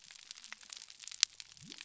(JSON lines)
{"label": "biophony", "recorder": "SoundTrap 300"}